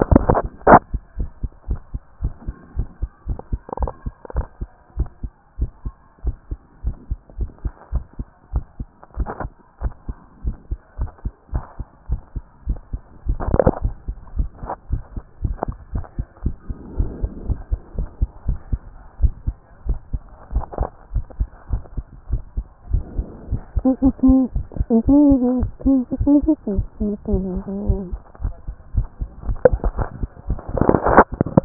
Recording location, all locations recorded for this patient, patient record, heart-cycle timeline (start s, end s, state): tricuspid valve (TV)
aortic valve (AV)+pulmonary valve (PV)+tricuspid valve (TV)+mitral valve (MV)
#Age: Child
#Sex: Female
#Height: 142.0 cm
#Weight: 32.4 kg
#Pregnancy status: False
#Murmur: Absent
#Murmur locations: nan
#Most audible location: nan
#Systolic murmur timing: nan
#Systolic murmur shape: nan
#Systolic murmur grading: nan
#Systolic murmur pitch: nan
#Systolic murmur quality: nan
#Diastolic murmur timing: nan
#Diastolic murmur shape: nan
#Diastolic murmur grading: nan
#Diastolic murmur pitch: nan
#Diastolic murmur quality: nan
#Outcome: Abnormal
#Campaign: 2014 screening campaign
0.00	1.09	unannotated
1.09	1.18	diastole
1.18	1.30	S1
1.30	1.42	systole
1.42	1.50	S2
1.50	1.68	diastole
1.68	1.80	S1
1.80	1.92	systole
1.92	2.02	S2
2.02	2.22	diastole
2.22	2.32	S1
2.32	2.46	systole
2.46	2.54	S2
2.54	2.76	diastole
2.76	2.88	S1
2.88	3.00	systole
3.00	3.10	S2
3.10	3.28	diastole
3.28	3.38	S1
3.38	3.52	systole
3.52	3.60	S2
3.60	3.80	diastole
3.80	3.90	S1
3.90	4.04	systole
4.04	4.14	S2
4.14	4.34	diastole
4.34	4.46	S1
4.46	4.60	systole
4.60	4.70	S2
4.70	4.96	diastole
4.96	5.08	S1
5.08	5.22	systole
5.22	5.32	S2
5.32	5.58	diastole
5.58	5.70	S1
5.70	5.84	systole
5.84	5.94	S2
5.94	6.24	diastole
6.24	6.36	S1
6.36	6.50	systole
6.50	6.60	S2
6.60	6.84	diastole
6.84	6.96	S1
6.96	7.10	systole
7.10	7.18	S2
7.18	7.38	diastole
7.38	7.50	S1
7.50	7.64	systole
7.64	7.72	S2
7.72	7.92	diastole
7.92	8.04	S1
8.04	8.18	systole
8.18	8.28	S2
8.28	8.52	diastole
8.52	8.64	S1
8.64	8.80	systole
8.80	8.90	S2
8.90	9.18	diastole
9.18	9.28	S1
9.28	9.42	systole
9.42	9.52	S2
9.52	9.82	diastole
9.82	9.92	S1
9.92	10.08	systole
10.08	10.16	S2
10.16	10.44	diastole
10.44	10.56	S1
10.56	10.70	systole
10.70	10.78	S2
10.78	10.98	diastole
10.98	11.10	S1
11.10	11.24	systole
11.24	11.32	S2
11.32	11.52	diastole
11.52	11.64	S1
11.64	11.78	systole
11.78	11.88	S2
11.88	12.08	diastole
12.08	12.20	S1
12.20	12.34	systole
12.34	12.44	S2
12.44	12.66	diastole
12.66	12.78	S1
12.78	12.92	systole
12.92	13.00	S2
13.00	13.26	diastole
13.26	13.38	S1
13.38	13.50	systole
13.50	13.60	S2
13.60	13.82	diastole
13.82	13.94	S1
13.94	14.08	systole
14.08	14.16	S2
14.16	14.36	diastole
14.36	14.48	S1
14.48	14.62	systole
14.62	14.72	S2
14.72	14.90	diastole
14.90	15.02	S1
15.02	15.14	systole
15.14	15.22	S2
15.22	15.42	diastole
15.42	15.56	S1
15.56	15.68	systole
15.68	15.76	S2
15.76	15.94	diastole
15.94	16.04	S1
16.04	16.18	systole
16.18	16.26	S2
16.26	16.44	diastole
16.44	16.54	S1
16.54	16.68	systole
16.68	16.76	S2
16.76	16.98	diastole
16.98	17.10	S1
17.10	17.22	systole
17.22	17.30	S2
17.30	17.48	diastole
17.48	17.58	S1
17.58	17.70	systole
17.70	17.80	S2
17.80	17.96	diastole
17.96	18.08	S1
18.08	18.20	systole
18.20	18.28	S2
18.28	18.46	diastole
18.46	18.58	S1
18.58	18.70	systole
18.70	18.82	S2
18.82	19.20	diastole
19.20	19.34	S1
19.34	19.46	systole
19.46	19.56	S2
19.56	19.86	diastole
19.86	19.98	S1
19.98	20.12	systole
20.12	20.22	S2
20.22	20.52	diastole
20.52	20.64	S1
20.64	20.80	systole
20.80	20.88	S2
20.88	21.14	diastole
21.14	21.26	S1
21.26	21.38	systole
21.38	21.48	S2
21.48	21.72	diastole
21.72	21.82	S1
21.82	21.96	systole
21.96	22.06	S2
22.06	22.30	diastole
22.30	22.42	S1
22.42	22.56	systole
22.56	22.64	S2
22.64	22.92	diastole
22.92	23.04	S1
23.04	23.16	systole
23.16	23.26	S2
23.26	23.52	diastole
23.52	31.65	unannotated